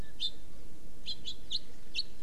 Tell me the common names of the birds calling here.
House Finch